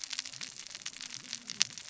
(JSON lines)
{"label": "biophony, cascading saw", "recorder": "SoundTrap 600 or HydroMoth"}